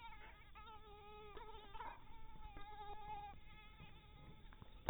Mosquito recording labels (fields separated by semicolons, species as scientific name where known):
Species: mosquito; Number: one; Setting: cup